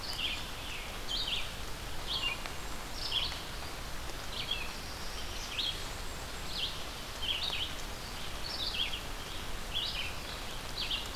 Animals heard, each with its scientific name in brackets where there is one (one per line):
Black-throated Blue Warbler (Setophaga caerulescens)
Black-and-white Warbler (Mniotilta varia)
Red-eyed Vireo (Vireo olivaceus)
Blackburnian Warbler (Setophaga fusca)
Scarlet Tanager (Piranga olivacea)